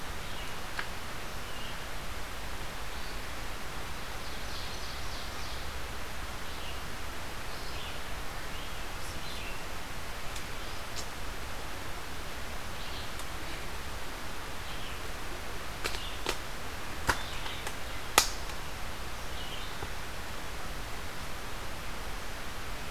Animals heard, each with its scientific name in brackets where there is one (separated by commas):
Red-eyed Vireo (Vireo olivaceus), Ovenbird (Seiurus aurocapilla)